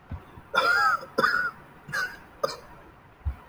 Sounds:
Cough